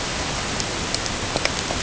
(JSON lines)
{"label": "ambient", "recorder": "HydroMoth"}